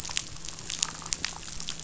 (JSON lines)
{"label": "biophony, chatter", "recorder": "SoundTrap 500"}